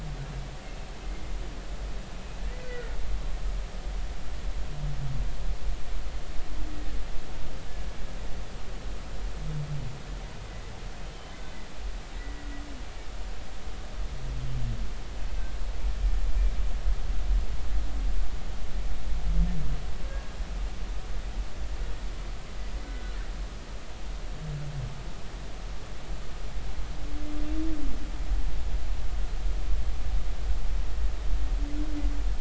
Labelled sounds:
2.6	2.9	humpback whale, 1.4 to 2.1 kHz
12.2	12.5	humpback whale, 1.9 to 2.0 kHz
22.8	23.2	humpback whale, 1.4 to 1.5 kHz

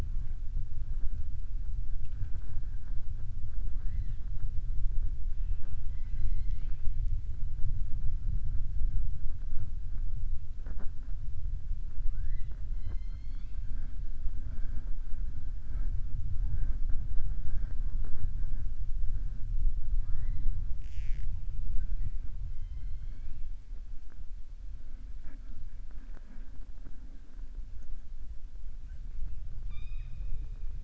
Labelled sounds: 5.3	6.9	killer whale, southern resident, 0.49 to 6.1 kHz
12.7	13.9	killer whale, southern resident, 0.34 to 5.4 kHz
22.5	23.4	killer whale, southern resident, 2.1 to 4.3 kHz

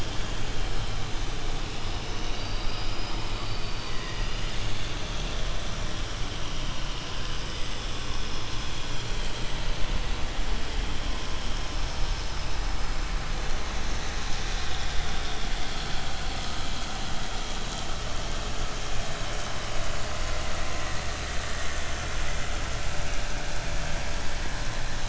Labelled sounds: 2.2	4.6	killer whale, southern resident, 1.0 to 5.4 kHz

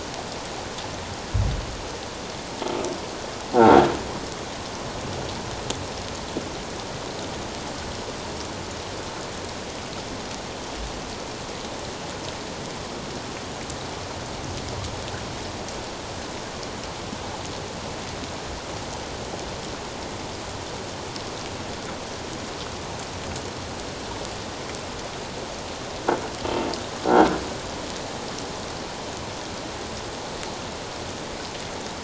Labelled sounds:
27.0	27.4	croaking sound likely from a nearby submerged object, 1.3 to 1.6 kHz

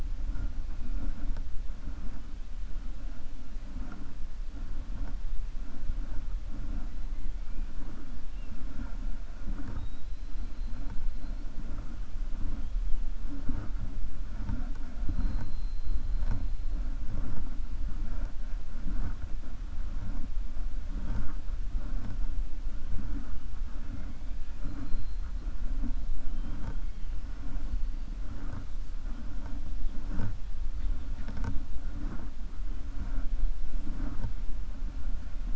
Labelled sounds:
9.7	10.7	killer whale, 3.7 to 4.8 kHz

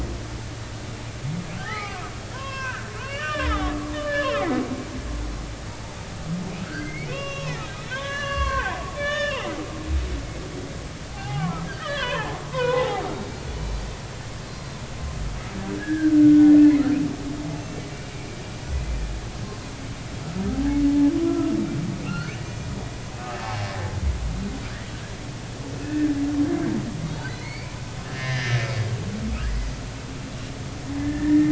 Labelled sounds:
1.6	4.4	humpback whale, 0.80 to 3.8 kHz
6.6	7.6	humpback whale, 0.93 to 5.6 kHz
7.9	9.6	humpback whale, 0.80 to 4.6 kHz
11.1	13.5	humpback whale, 0.80 to 4.4 kHz
14.5	14.8	humpback whale, 4.1 to 4.2 kHz
16.8	18.3	humpback whale, 1.4 to 2.9 kHz
20.5	21.5	humpback whale, 0.80 to 1.4 kHz
22.1	22.4	humpback whale, 1.3 to 2.9 kHz
23.4	23.9	humpback whale, 0.80 to 1.9 kHz
25.8	26.1	humpback whale, 1.7 to 2.7 kHz
27.4	28.9	humpback whale, 1.7 to 4.9 kHz
31.0	31.4	humpback whale, 1.7 to 1.9 kHz

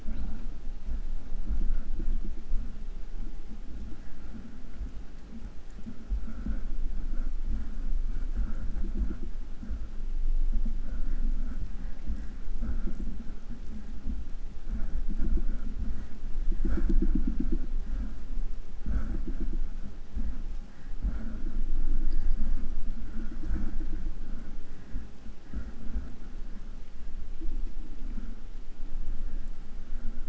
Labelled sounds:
0.0	0.6	killer whale, southern resident, 0.34 to 6.7 kHz

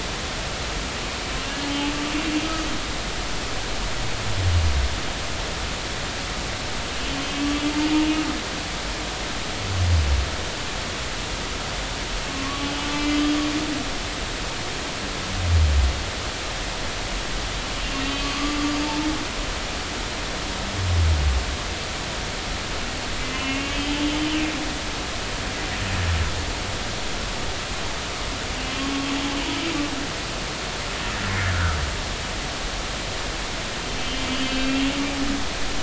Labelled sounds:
12.3	13.2	humpback whale, 1.0 to 5.1 kHz
17.8	18.6	humpback whale, 1.1 to 2.8 kHz
23.2	24.4	humpback whale, 2.4 to 3.1 kHz
28.6	28.8	humpback whale, 2.6 to 2.8 kHz
31.5	31.8	humpback whale, 1.2 to 1.6 kHz
34.0	34.9	humpback whale, 2.5 to 3.2 kHz

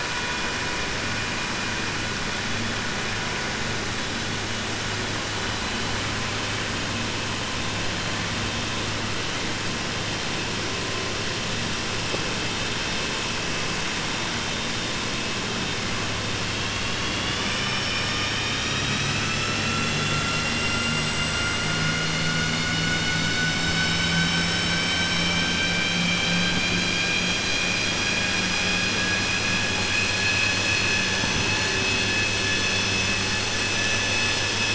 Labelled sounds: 29.8	31.0	vessel noise, 1.7 to 5.2 kHz

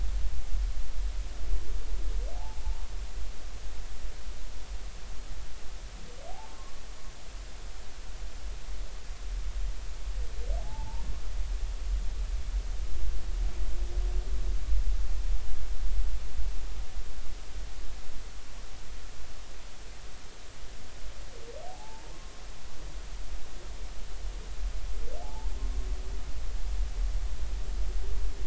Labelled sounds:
2.4	2.6	humpback whale, 0.80 to 0.93 kHz
6.3	6.8	humpback whale, 0.80 to 1.2 kHz
10.6	11.0	humpback whale, 0.80 to 0.99 kHz
21.7	22.1	humpback whale, 0.80 to 0.99 kHz
25.2	25.5	humpback whale, 0.80 to 0.99 kHz

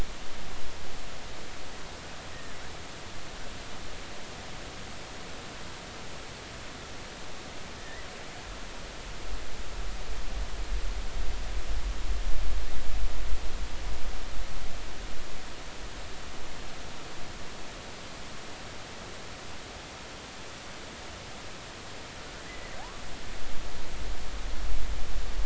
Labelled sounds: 2.3	2.6	killer whale, offshore, 1.7 to 1.9 kHz
7.8	8.1	killer whale, offshore, 1.7 to 2.0 kHz
22.8	23.0	killer whale, offshore, 0.80 to 1.2 kHz

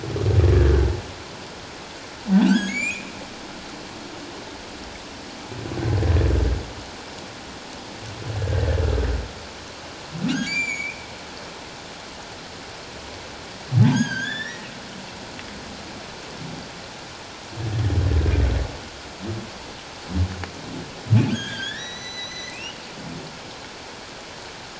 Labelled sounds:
0.6	0.9	humpback whale, 1.5 to 1.8 kHz
2.3	3.1	humpback whale, 1.4 to 7.9 kHz
8.4	8.8	humpback whale, 1.5 to 1.9 kHz
10.3	11.0	humpback whale, 1.3 to 7.2 kHz
13.9	14.7	humpback whale, 1.5 to 7.1 kHz
21.3	22.8	humpback whale, 1.5 to 6.2 kHz

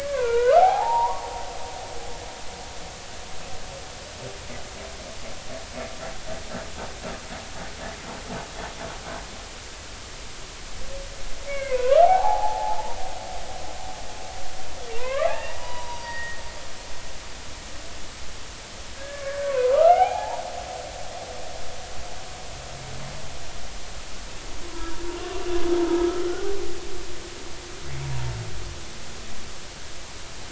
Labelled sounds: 11.5	13.0	humpback whale, 0.80 to 2.3 kHz
15.0	16.4	humpback whale, 0.90 to 4.9 kHz
19.0	20.4	humpback whale, 0.80 to 3.0 kHz
25.0	25.5	humpback whale, 0.90 to 1.2 kHz
25.9	26.2	humpback whale, 1.2 to 1.4 kHz

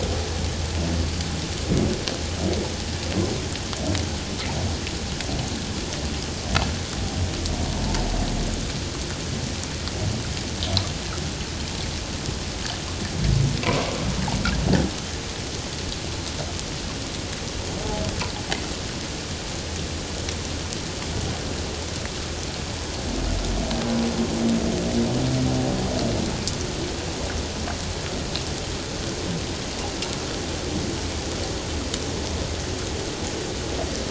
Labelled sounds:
13.6	13.9	humpback whale, 0.94 to 1.2 kHz

